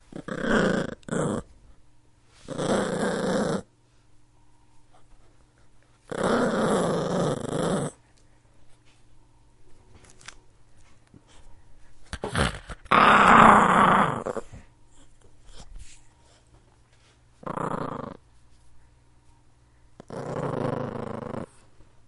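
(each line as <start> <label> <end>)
0.0 A dog growls. 1.5
2.5 A dog growls. 3.6
6.1 A dog growls. 8.0
12.1 A dog growls increasingly aggressively. 14.6
17.5 A dog growls. 18.2
20.1 A dog growls. 21.5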